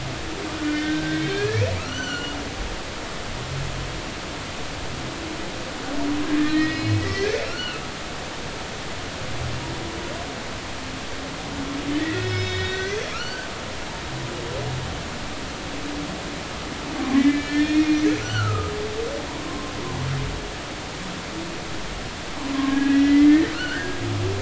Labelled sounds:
0.5	2.4	humpback whale, 1.2 to 6.1 kHz
6.3	7.8	humpback whale, 1.3 to 5.1 kHz
12.0	13.5	humpback whale, 1.2 to 5.3 kHz
17.2	18.7	humpback whale, 1.2 to 3.4 kHz
19.4	19.7	humpback whale, 0.99 to 1.1 kHz
22.7	24.0	humpback whale, 1.3 to 3.2 kHz

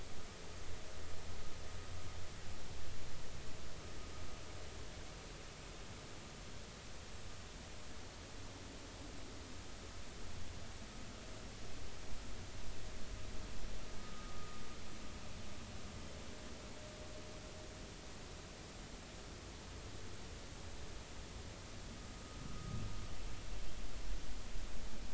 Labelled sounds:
14.0	14.6	vessel noise, 1.2 to 1.3 kHz
22.6	22.8	vessel noise, 1.2 to 1.3 kHz

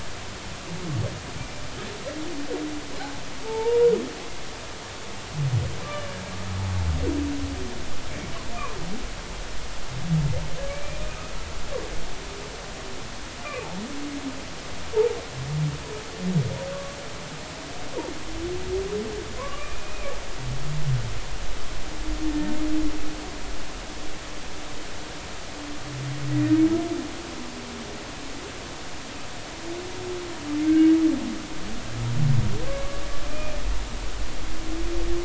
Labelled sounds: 3.4	3.9	humpback whale, 0.83 to 0.99 kHz
5.8	6.1	humpback whale, 1.1 to 1.2 kHz
10.7	11.0	humpback whale, 2.2 to 2.5 kHz
19.4	20.1	humpback whale, 0.96 to 2.6 kHz
30.6	30.9	humpback whale, 1.5 to 2.3 kHz
32.7	33.0	humpback whale, 1.1 to 1.2 kHz
33.3	33.6	humpback whale, 2.3 to 2.5 kHz

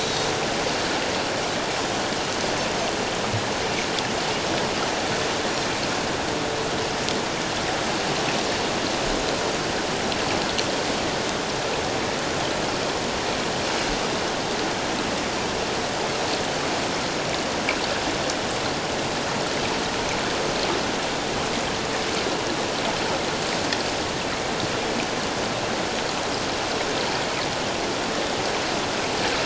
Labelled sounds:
0.0	0.3	Pacific white-sided dolphin, 3.7 to 4.0 kHz

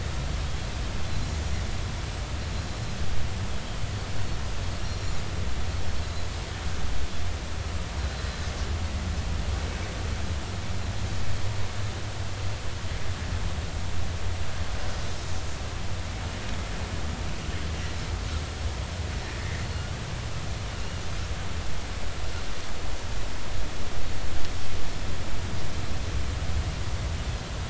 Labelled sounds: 4.8	5.1	Pacific white-sided dolphin, 5.5 to 5.7 kHz
8.0	8.4	Pacific white-sided dolphin, 3.9 to 4.1 kHz
19.6	19.9	Pacific white-sided dolphin, 4.2 to 4.4 kHz
20.8	21.0	Pacific white-sided dolphin, 2.7 to 2.9 kHz

